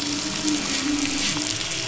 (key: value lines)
label: anthrophony, boat engine
recorder: SoundTrap 500